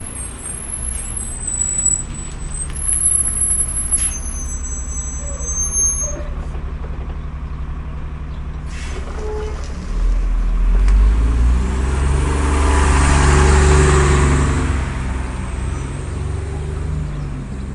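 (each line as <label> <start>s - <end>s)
A continuous, natural squeaking sound that rises and falls in volume but remains persistent. 0.0s - 6.4s
A weak, continuous natural engine sound from a bus. 6.6s - 8.7s
The sound of a door opening and hydraulics from a bus door. 8.7s - 9.7s
The engine of a vehicle speeds up continuously in a natural manner. 10.2s - 15.7s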